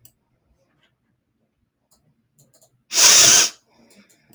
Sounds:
Sniff